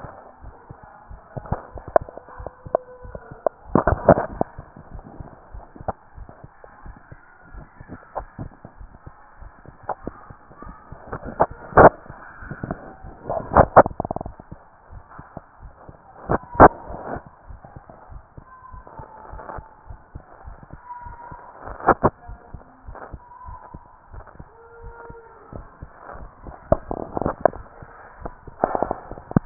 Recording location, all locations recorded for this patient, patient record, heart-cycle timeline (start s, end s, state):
tricuspid valve (TV)
aortic valve (AV)+pulmonary valve (PV)+tricuspid valve (TV)+mitral valve (MV)
#Age: Adolescent
#Sex: Male
#Height: 145.0 cm
#Weight: 36.2 kg
#Pregnancy status: False
#Murmur: Absent
#Murmur locations: nan
#Most audible location: nan
#Systolic murmur timing: nan
#Systolic murmur shape: nan
#Systolic murmur grading: nan
#Systolic murmur pitch: nan
#Systolic murmur quality: nan
#Diastolic murmur timing: nan
#Diastolic murmur shape: nan
#Diastolic murmur grading: nan
#Diastolic murmur pitch: nan
#Diastolic murmur quality: nan
#Outcome: Normal
#Campaign: 2015 screening campaign
0.00	17.22	unannotated
17.22	17.48	diastole
17.48	17.60	S1
17.60	17.74	systole
17.74	17.82	S2
17.82	18.10	diastole
18.10	18.22	S1
18.22	18.35	systole
18.35	18.44	S2
18.44	18.72	diastole
18.72	18.84	S1
18.84	18.97	systole
18.97	19.08	S2
19.08	19.32	diastole
19.32	19.43	S1
19.43	19.54	systole
19.54	19.68	S2
19.68	19.88	diastole
19.88	20.00	S1
20.00	20.12	systole
20.12	20.22	S2
20.22	20.44	diastole
20.44	20.56	S1
20.56	20.70	systole
20.70	20.80	S2
20.80	21.03	diastole
21.03	21.16	S1
21.16	21.30	systole
21.30	21.38	S2
21.38	21.66	diastole
21.66	21.78	S1
21.78	21.84	systole
21.84	21.98	S2
21.98	22.26	diastole
22.26	22.40	S1
22.40	22.52	systole
22.52	22.62	S2
22.62	22.86	diastole
22.86	22.98	S1
22.98	23.10	systole
23.10	23.20	S2
23.20	23.46	diastole
23.46	23.58	S1
23.58	23.74	systole
23.74	23.82	S2
23.82	24.12	diastole
24.12	24.24	S1
24.24	24.36	systole
24.36	24.48	S2
24.48	24.82	diastole
24.82	24.96	S1
24.96	25.08	systole
25.08	25.18	S2
25.18	25.52	diastole
25.52	25.65	S1
25.65	25.80	systole
25.80	25.87	S2
25.87	26.16	diastole
26.16	26.30	S1
26.30	26.45	systole
26.45	26.54	S2
26.54	29.46	unannotated